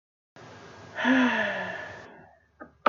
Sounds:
Sigh